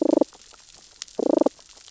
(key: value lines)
label: biophony, damselfish
recorder: SoundTrap 600 or HydroMoth